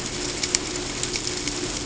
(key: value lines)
label: ambient
recorder: HydroMoth